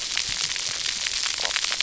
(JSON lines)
{"label": "biophony, stridulation", "recorder": "SoundTrap 300"}